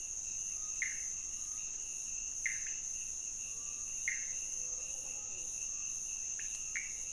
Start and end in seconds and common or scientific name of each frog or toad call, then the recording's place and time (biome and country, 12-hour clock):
0.0	4.5	Pithecopus azureus
6.7	7.1	Pithecopus azureus
Cerrado, Brazil, 2:15am